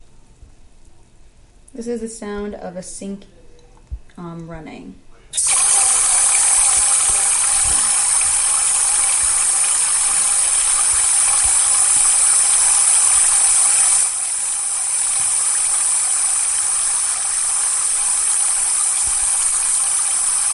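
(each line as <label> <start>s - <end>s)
A woman is speaking. 1.7s - 3.4s
A woman is speaking. 4.1s - 5.0s
A sink is running continuously. 5.3s - 20.5s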